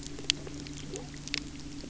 {"label": "anthrophony, boat engine", "recorder": "SoundTrap 300"}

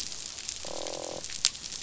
{"label": "biophony, croak", "recorder": "SoundTrap 500"}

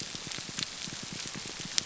{"label": "biophony, grouper groan", "recorder": "SoundTrap 300"}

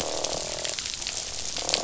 {"label": "biophony, croak", "recorder": "SoundTrap 500"}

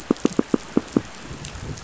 {"label": "biophony, pulse", "recorder": "SoundTrap 500"}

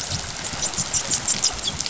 {"label": "biophony, dolphin", "recorder": "SoundTrap 500"}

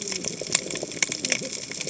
{"label": "biophony, cascading saw", "recorder": "HydroMoth"}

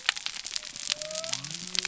{"label": "biophony", "recorder": "SoundTrap 300"}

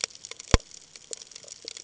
{"label": "ambient", "recorder": "HydroMoth"}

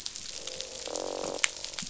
{"label": "biophony, croak", "recorder": "SoundTrap 500"}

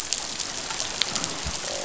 {"label": "biophony, croak", "recorder": "SoundTrap 500"}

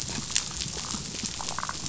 {"label": "biophony, damselfish", "recorder": "SoundTrap 500"}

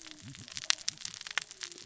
{"label": "biophony, cascading saw", "recorder": "SoundTrap 600 or HydroMoth"}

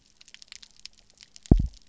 {"label": "biophony, double pulse", "recorder": "SoundTrap 300"}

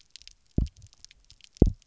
{"label": "biophony, double pulse", "recorder": "SoundTrap 300"}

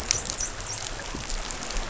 {"label": "biophony, dolphin", "recorder": "SoundTrap 500"}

